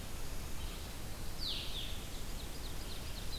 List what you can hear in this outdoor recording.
Blue-headed Vireo, Red-eyed Vireo, Ovenbird